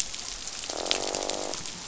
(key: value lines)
label: biophony, croak
recorder: SoundTrap 500